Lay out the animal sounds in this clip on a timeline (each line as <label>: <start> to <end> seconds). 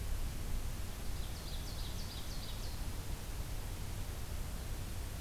Ovenbird (Seiurus aurocapilla): 1.0 to 2.8 seconds